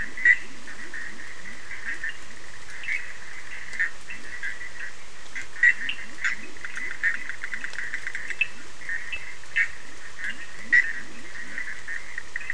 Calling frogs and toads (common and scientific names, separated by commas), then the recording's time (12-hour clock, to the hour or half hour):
Leptodactylus latrans, Bischoff's tree frog (Boana bischoffi), Cochran's lime tree frog (Sphaenorhynchus surdus)
~11pm